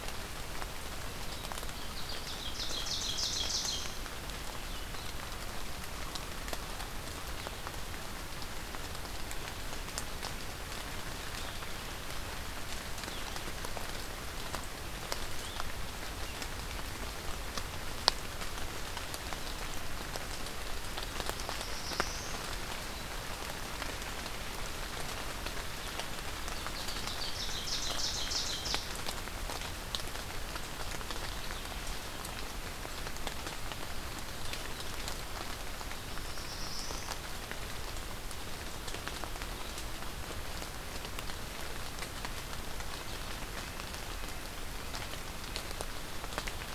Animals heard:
Ovenbird (Seiurus aurocapilla), Black-throated Blue Warbler (Setophaga caerulescens)

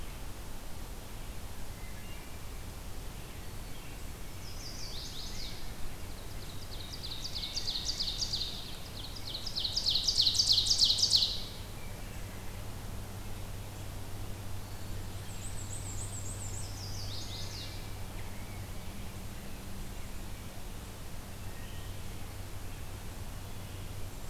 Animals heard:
Chestnut-sided Warbler (Setophaga pensylvanica), Wood Thrush (Hylocichla mustelina), Black-and-white Warbler (Mniotilta varia), Ovenbird (Seiurus aurocapilla)

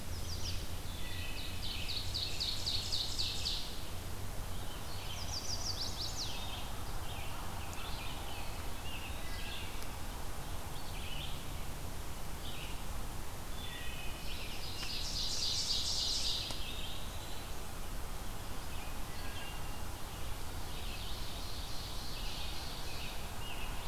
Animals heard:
Chestnut-sided Warbler (Setophaga pensylvanica), Ovenbird (Seiurus aurocapilla), Wood Thrush (Hylocichla mustelina), American Robin (Turdus migratorius), Eastern Wood-Pewee (Contopus virens)

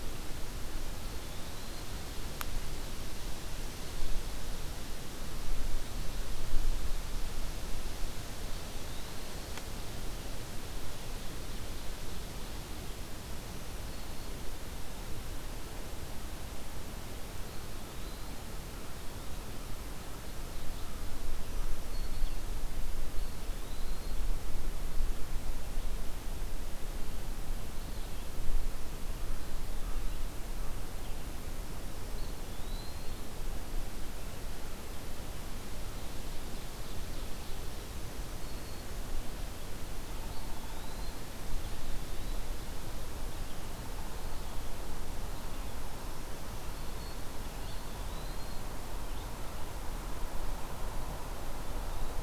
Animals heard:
Downy Woodpecker (Dryobates pubescens), Eastern Wood-Pewee (Contopus virens), Black-throated Green Warbler (Setophaga virens), American Crow (Corvus brachyrhynchos), Ovenbird (Seiurus aurocapilla)

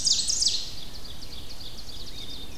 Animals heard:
Black-and-white Warbler (Mniotilta varia), Black-capped Chickadee (Poecile atricapillus), Ovenbird (Seiurus aurocapilla), Wood Thrush (Hylocichla mustelina), Rose-breasted Grosbeak (Pheucticus ludovicianus)

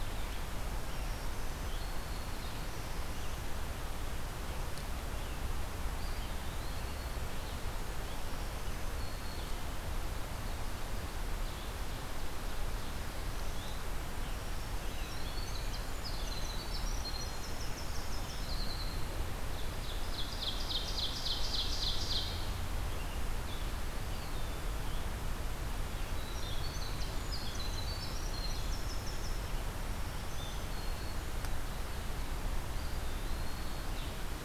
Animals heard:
Blue-headed Vireo (Vireo solitarius), Ovenbird (Seiurus aurocapilla), Black-throated Green Warbler (Setophaga virens), Winter Wren (Troglodytes hiemalis), Eastern Wood-Pewee (Contopus virens)

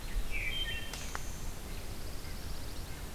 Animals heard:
Wood Thrush (Hylocichla mustelina), Pine Warbler (Setophaga pinus)

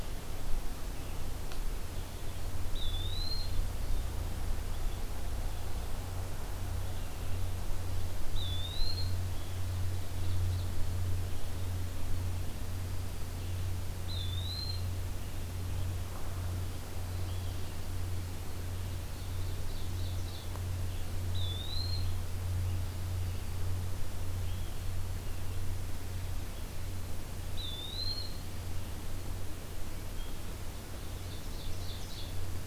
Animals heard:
Eastern Wood-Pewee (Contopus virens), Blue-headed Vireo (Vireo solitarius), Ovenbird (Seiurus aurocapilla), Dark-eyed Junco (Junco hyemalis), Red Crossbill (Loxia curvirostra)

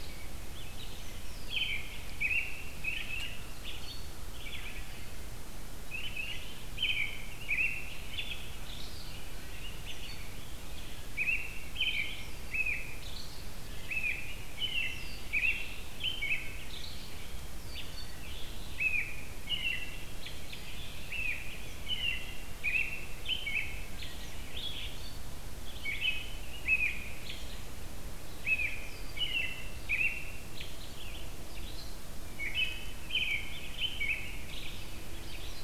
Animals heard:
Red-eyed Vireo (Vireo olivaceus), American Robin (Turdus migratorius)

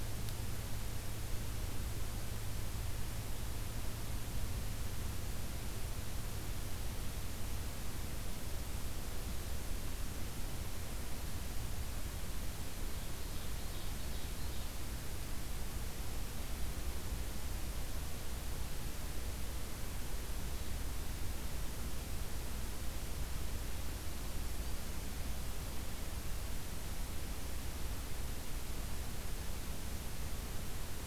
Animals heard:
Ovenbird (Seiurus aurocapilla)

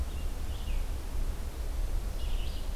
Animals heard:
Red-eyed Vireo (Vireo olivaceus)

